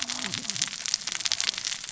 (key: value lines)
label: biophony, cascading saw
recorder: SoundTrap 600 or HydroMoth